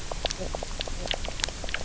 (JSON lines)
{"label": "biophony, knock croak", "recorder": "SoundTrap 300"}